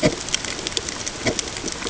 {"label": "ambient", "recorder": "HydroMoth"}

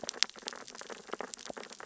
{"label": "biophony, sea urchins (Echinidae)", "recorder": "SoundTrap 600 or HydroMoth"}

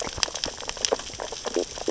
{"label": "biophony, sea urchins (Echinidae)", "recorder": "SoundTrap 600 or HydroMoth"}
{"label": "biophony, stridulation", "recorder": "SoundTrap 600 or HydroMoth"}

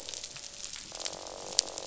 {"label": "biophony, croak", "recorder": "SoundTrap 500"}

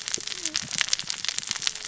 {"label": "biophony, cascading saw", "recorder": "SoundTrap 600 or HydroMoth"}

